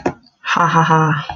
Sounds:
Laughter